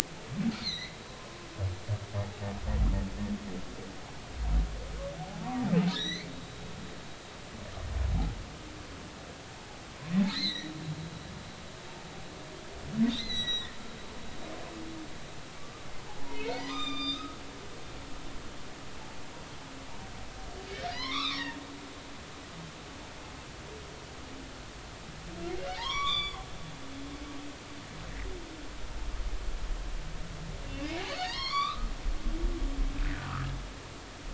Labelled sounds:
0.6	1.4	humpback whale, 0.96 to 6.3 kHz
5.2	6.3	humpback whale, 0.80 to 6.2 kHz
10.3	10.7	humpback whale, 1.8 to 4.4 kHz
13.1	13.8	humpback whale, 1.8 to 6.3 kHz
15.6	17.4	humpback whale, 0.90 to 7.5 kHz
20.9	21.6	humpback whale, 0.93 to 5.6 kHz
25.7	26.4	humpback whale, 0.80 to 7.2 kHz
31.2	31.9	humpback whale, 0.90 to 6.0 kHz
33.1	33.5	humpback whale, 1.1 to 1.5 kHz

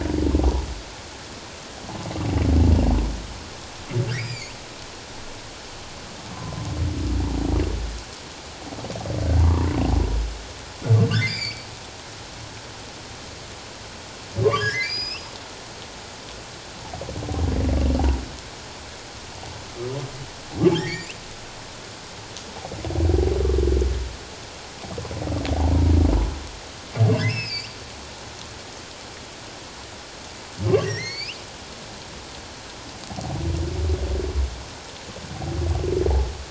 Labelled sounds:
4.1	4.5	humpback whale, 2.1 to 7.6 kHz
9.4	9.7	humpback whale, 0.88 to 1.2 kHz
11.1	11.7	humpback whale, 1.4 to 5.1 kHz
14.4	15.3	humpback whale, 0.97 to 5.4 kHz
20.8	21.1	humpback whale, 1.5 to 4.9 kHz
25.5	25.8	humpback whale, 0.78 to 1.0 kHz
27.2	27.8	humpback whale, 1.5 to 5.4 kHz
30.7	31.4	humpback whale, 1.8 to 6.9 kHz

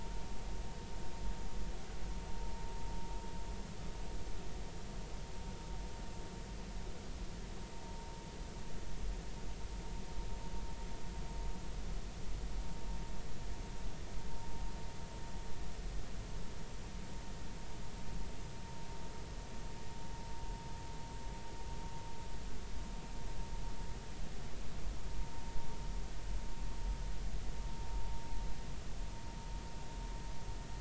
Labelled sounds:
8.8	9.1	vessel noise, 0.90 to 0.99 kHz

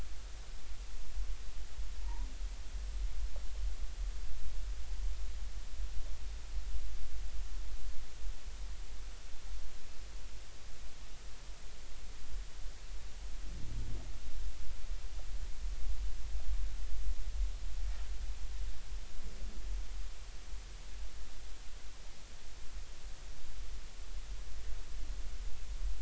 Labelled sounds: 2.0	2.3	humpback whale, 0.83 to 1.1 kHz

